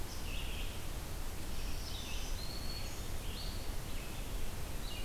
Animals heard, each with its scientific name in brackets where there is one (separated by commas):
Red-eyed Vireo (Vireo olivaceus), Black-throated Green Warbler (Setophaga virens)